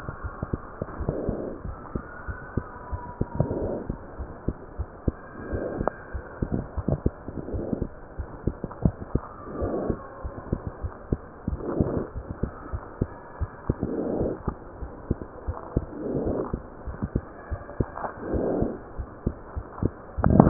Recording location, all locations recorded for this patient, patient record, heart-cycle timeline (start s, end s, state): pulmonary valve (PV)
aortic valve (AV)+pulmonary valve (PV)+tricuspid valve (TV)+mitral valve (MV)
#Age: Child
#Sex: Male
#Height: 92.0 cm
#Weight: 15.2 kg
#Pregnancy status: False
#Murmur: Absent
#Murmur locations: nan
#Most audible location: nan
#Systolic murmur timing: nan
#Systolic murmur shape: nan
#Systolic murmur grading: nan
#Systolic murmur pitch: nan
#Systolic murmur quality: nan
#Diastolic murmur timing: nan
#Diastolic murmur shape: nan
#Diastolic murmur grading: nan
#Diastolic murmur pitch: nan
#Diastolic murmur quality: nan
#Outcome: Normal
#Campaign: 2015 screening campaign
0.00	1.38	unannotated
1.38	1.63	diastole
1.63	1.76	S1
1.76	1.92	systole
1.92	2.04	S2
2.04	2.23	diastole
2.23	2.36	S1
2.36	2.54	systole
2.54	2.64	S2
2.64	2.90	diastole
2.90	3.02	S1
3.02	3.17	systole
3.17	3.28	S2
3.28	3.59	diastole
3.59	3.70	S1
3.70	3.86	systole
3.86	3.96	S2
3.96	4.16	diastole
4.16	4.28	S1
4.28	4.44	systole
4.44	4.54	S2
4.54	4.74	diastole
4.74	4.88	S1
4.88	5.02	systole
5.02	5.16	S2
5.16	5.52	diastole
5.52	5.63	S1
5.63	5.77	systole
5.77	5.90	S2
5.90	6.11	diastole
6.11	6.23	S1
6.23	6.40	systole
6.40	6.50	S2
6.50	6.75	diastole
6.75	6.86	S1
6.86	7.03	systole
7.03	7.12	S2
7.12	7.49	diastole
7.49	7.63	S1
7.63	7.76	systole
7.76	7.90	S2
7.90	8.14	diastole
8.14	8.28	S1
8.28	8.45	systole
8.45	8.56	S2
8.56	8.83	diastole
8.83	20.50	unannotated